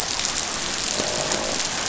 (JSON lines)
{"label": "biophony, croak", "recorder": "SoundTrap 500"}